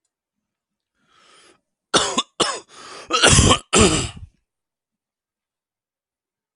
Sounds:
Cough